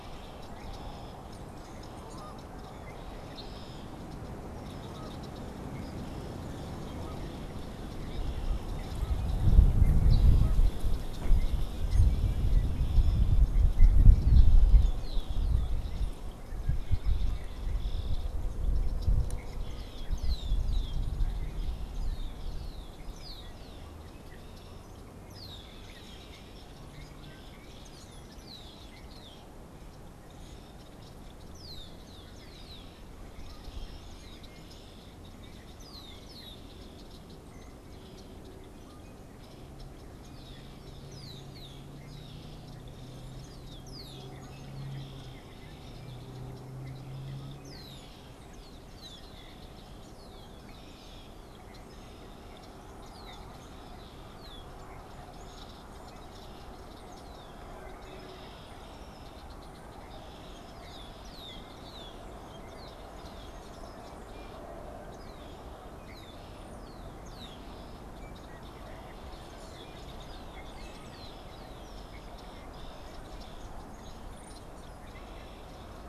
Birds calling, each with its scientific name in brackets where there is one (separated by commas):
unidentified bird, Canada Goose (Branta canadensis), Red-winged Blackbird (Agelaius phoeniceus), Brown-headed Cowbird (Molothrus ater)